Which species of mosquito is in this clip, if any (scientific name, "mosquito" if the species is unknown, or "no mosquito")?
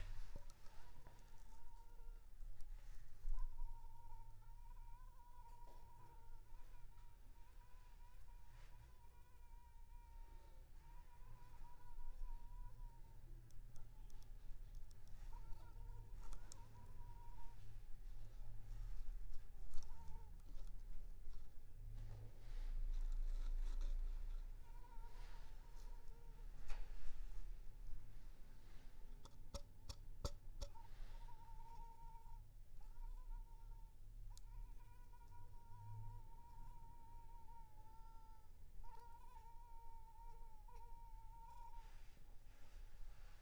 Anopheles arabiensis